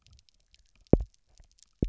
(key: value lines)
label: biophony, double pulse
recorder: SoundTrap 300